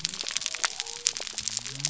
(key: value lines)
label: biophony
recorder: SoundTrap 300